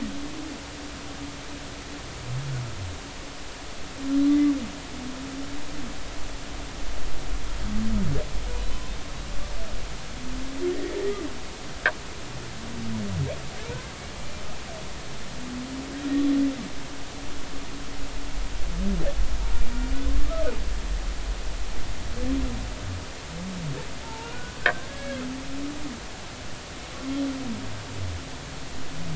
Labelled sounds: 10.7	11.2	humpback whale, 1.7 to 2.1 kHz
24.0	25.2	humpback whale, 0.83 to 1.9 kHz

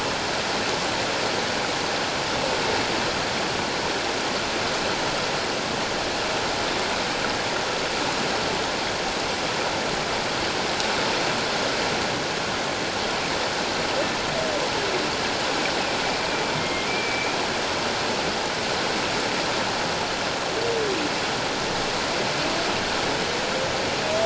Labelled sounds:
16.6	17.4	humpback whale, 2.1 to 2.5 kHz

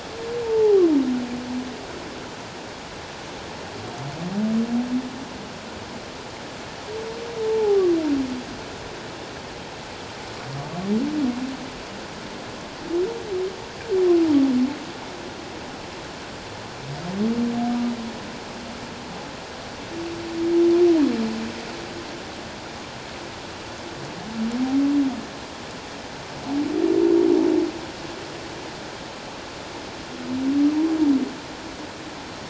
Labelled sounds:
0.4	0.8	humpback whale, 0.78 to 0.94 kHz
7.4	7.8	humpback whale, 0.78 to 0.94 kHz

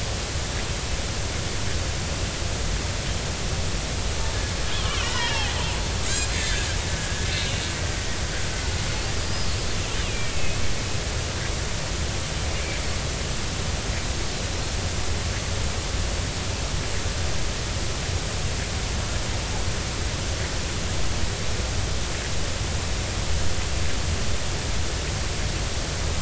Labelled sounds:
4.7	5.5	killer whale, Bigg's (transient), 0.86 to 3.5 kHz
6.1	6.7	killer whale, Bigg's (transient), 1.5 to 4.2 kHz
7.0	7.3	killer whale, Bigg's (transient), 1.6 to 1.8 kHz
9.2	9.5	killer whale, Bigg's (transient), 4.7 to 5.2 kHz
9.9	10.6	killer whale, Bigg's (transient), 2.1 to 3.1 kHz

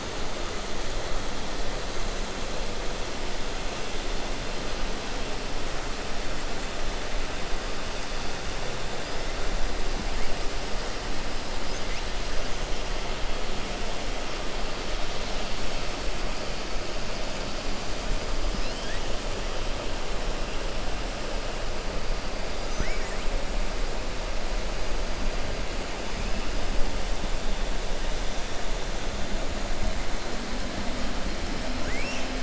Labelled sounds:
22.7	23.2	killer whale, 0.27 to 2.4 kHz
31.7	32.3	killer whale, 1.3 to 3.7 kHz

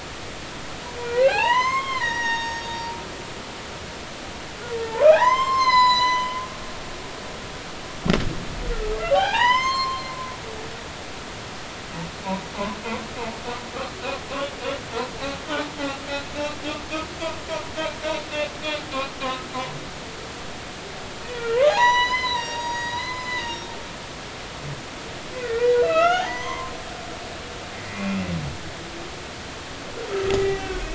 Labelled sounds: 1.1	2.7	humpback whale, 0.80 to 6.7 kHz
5.0	6.4	humpback whale, 0.80 to 7.1 kHz
9.1	10.1	humpback whale, 0.80 to 7.5 kHz
19.2	19.4	humpback whale, 2.8 to 3.0 kHz
21.3	23.7	humpback whale, 0.80 to 7.9 kHz
25.3	26.7	humpback whale, 0.80 to 3.7 kHz
27.9	28.2	humpback whale, 2.3 to 2.5 kHz
30.3	30.8	humpback whale, 1.4 to 2.4 kHz

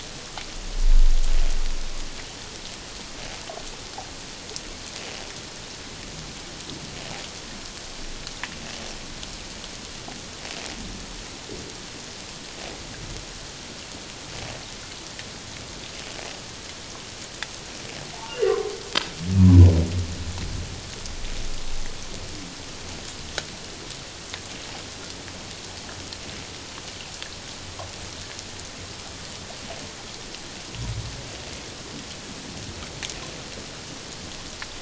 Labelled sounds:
18.1	18.7	humpback whale, 0.84 to 3.0 kHz

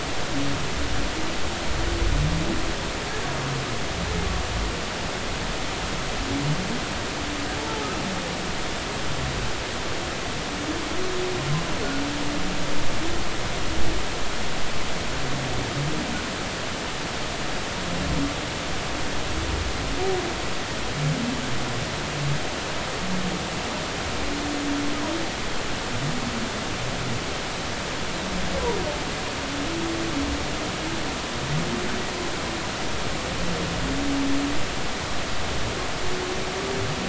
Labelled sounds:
7.6	7.9	humpback whale, 0.83 to 0.96 kHz

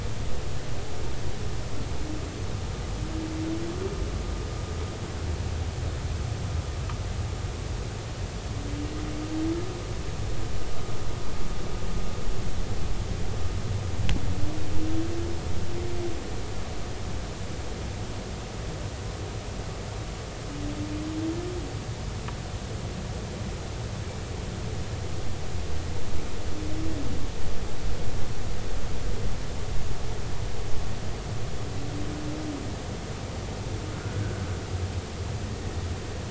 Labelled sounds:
33.9	34.2	humpback whale, 1.4 to 1.5 kHz

